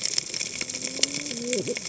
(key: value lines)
label: biophony, cascading saw
recorder: HydroMoth